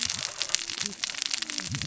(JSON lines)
{"label": "biophony, cascading saw", "recorder": "SoundTrap 600 or HydroMoth"}